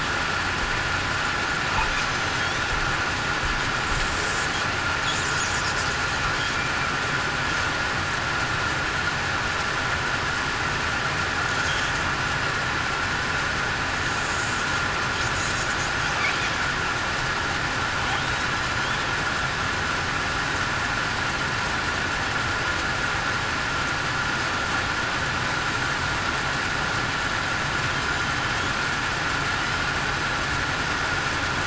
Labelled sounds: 2.0	2.4	killer whale, southern resident, 6.1 to 6.2 kHz

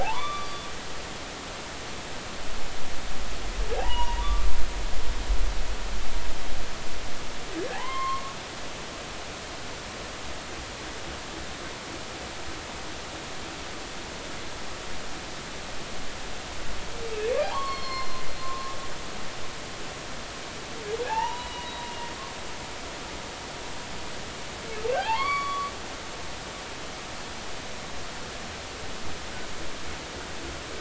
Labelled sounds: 0.0	0.6	humpback whale, 0.80 to 4.8 kHz
3.8	5.2	humpback whale, 0.80 to 3.0 kHz
7.7	8.3	humpback whale, 0.80 to 4.4 kHz
17.4	18.8	humpback whale, 0.80 to 5.4 kHz
21.0	21.7	humpback whale, 0.80 to 4.0 kHz
24.9	25.7	humpback whale, 0.80 to 4.6 kHz

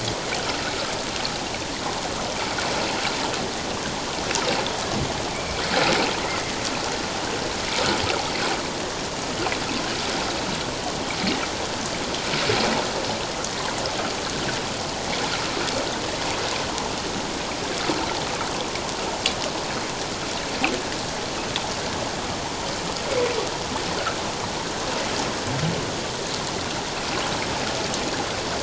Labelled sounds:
5.3	6.5	humpback whale, 1.8 to 2.4 kHz

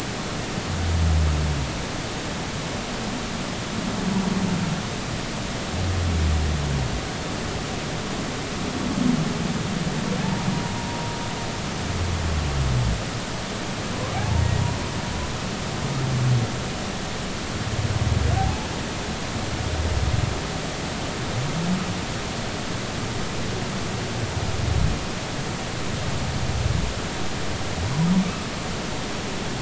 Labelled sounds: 10.2	10.5	humpback whale, 0.83 to 0.99 kHz
13.9	14.4	humpback whale, 0.80 to 1.2 kHz
18.4	18.7	humpback whale, 0.80 to 0.93 kHz

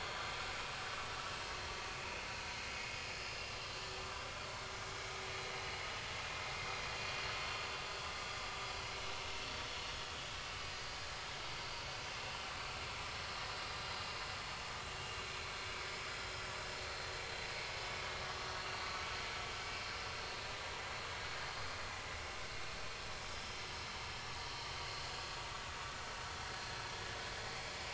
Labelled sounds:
2.8	3.5	vessel noise, 4.9 to 5.2 kHz
7.4	8.1	vessel noise, 4.3 to 4.6 kHz
13.0	13.8	vessel noise, 4.7 to 5.3 kHz
16.9	17.2	vessel noise, 4.1 to 4.3 kHz
18.6	18.8	vessel noise, 4.3 to 4.5 kHz

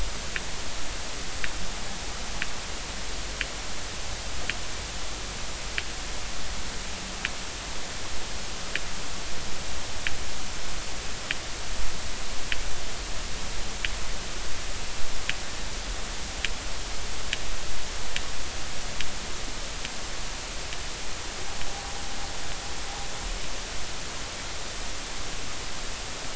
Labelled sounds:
21.7	22.0	humpback whale, 0.80 to 0.86 kHz

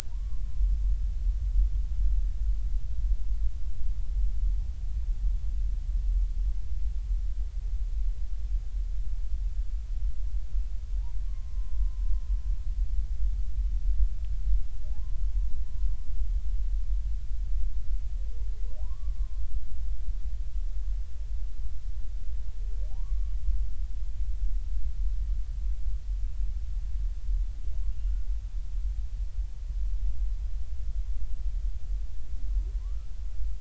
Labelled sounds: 0.1	0.4	humpback whale, 0.90 to 1.2 kHz
11.2	12.0	humpback whale, 0.96 to 1.2 kHz
14.9	15.2	humpback whale, 0.80 to 1.1 kHz
18.8	19.4	humpback whale, 0.93 to 1.2 kHz
22.9	23.4	humpback whale, 0.80 to 1.2 kHz
32.8	33.1	humpback whale, 0.93 to 1.4 kHz

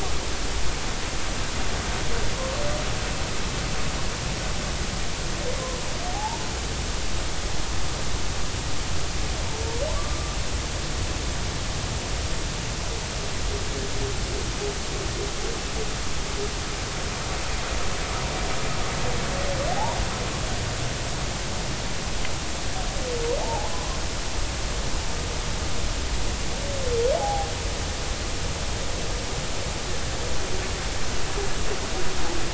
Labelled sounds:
6.1	6.4	humpback whale, 0.80 to 0.99 kHz
19.7	20.0	humpback whale, 0.80 to 1.0 kHz
24.4	24.7	humpback whale, 0.80 to 1.1 kHz
27.2	27.5	humpback whale, 0.80 to 0.90 kHz

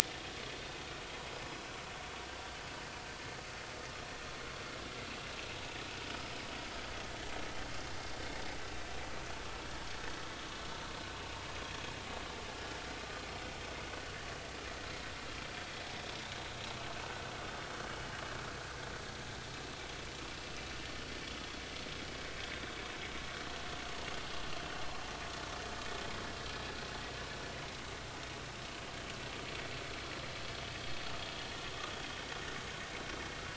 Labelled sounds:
24.7	25.0	vessel noise, 4.1 to 4.3 kHz

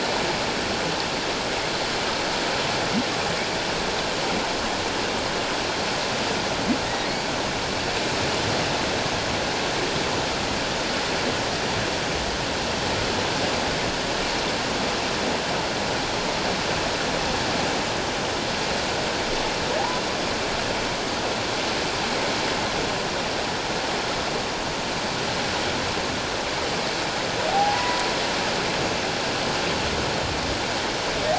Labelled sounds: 6.8	7.1	humpback whale, 1.8 to 2.0 kHz
27.5	28.0	humpback whale, 0.78 to 2.0 kHz

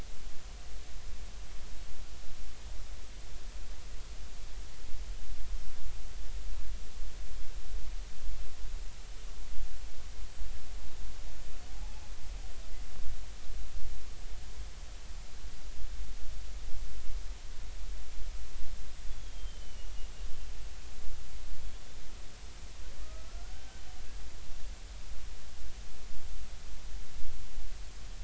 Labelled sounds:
11.7	12.0	killer whale, Bigg's (transient), 0.80 to 0.90 kHz
19.1	19.9	killer whale, Bigg's (transient), 2.8 to 3.5 kHz
23.0	23.8	killer whale, Bigg's (transient), 1.1 to 1.6 kHz

